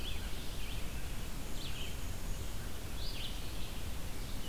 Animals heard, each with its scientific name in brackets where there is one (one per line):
Red-eyed Vireo (Vireo olivaceus)
Black-and-white Warbler (Mniotilta varia)